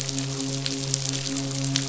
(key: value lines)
label: biophony, midshipman
recorder: SoundTrap 500